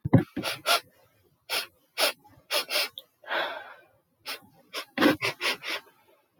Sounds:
Sniff